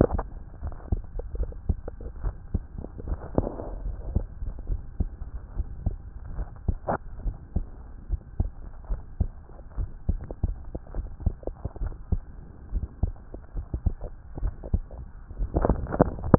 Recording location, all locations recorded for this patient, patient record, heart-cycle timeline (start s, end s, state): pulmonary valve (PV)
pulmonary valve (PV)+tricuspid valve (TV)+mitral valve (MV)
#Age: Child
#Sex: Male
#Height: 133.0 cm
#Weight: 28.2 kg
#Pregnancy status: False
#Murmur: Absent
#Murmur locations: nan
#Most audible location: nan
#Systolic murmur timing: nan
#Systolic murmur shape: nan
#Systolic murmur grading: nan
#Systolic murmur pitch: nan
#Systolic murmur quality: nan
#Diastolic murmur timing: nan
#Diastolic murmur shape: nan
#Diastolic murmur grading: nan
#Diastolic murmur pitch: nan
#Diastolic murmur quality: nan
#Outcome: Normal
#Campaign: 2014 screening campaign
0.00	0.62	unannotated
0.62	0.74	S1
0.74	0.90	systole
0.90	1.02	S2
1.02	1.38	diastole
1.38	1.50	S1
1.50	1.68	systole
1.68	1.78	S2
1.78	2.24	diastole
2.24	2.34	S1
2.34	2.52	systole
2.52	2.64	S2
2.64	3.06	diastole
3.06	3.18	S1
3.18	3.36	systole
3.36	3.48	S2
3.48	3.84	diastole
3.84	3.96	S1
3.96	4.14	systole
4.14	4.24	S2
4.24	4.68	diastole
4.68	4.80	S1
4.80	4.98	systole
4.98	5.10	S2
5.10	5.56	diastole
5.56	5.68	S1
5.68	5.84	systole
5.84	5.96	S2
5.96	6.36	diastole
6.36	6.48	S1
6.48	6.66	systole
6.66	6.78	S2
6.78	7.24	diastole
7.24	7.36	S1
7.36	7.54	systole
7.54	7.66	S2
7.66	8.10	diastole
8.10	8.20	S1
8.20	8.38	systole
8.38	8.50	S2
8.50	8.90	diastole
8.90	9.00	S1
9.00	9.18	systole
9.18	9.30	S2
9.30	9.80	diastole
9.80	9.88	S1
9.88	10.08	systole
10.08	10.18	S2
10.18	10.45	diastole
10.45	16.38	unannotated